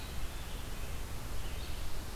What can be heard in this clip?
Red-eyed Vireo, Red-breasted Nuthatch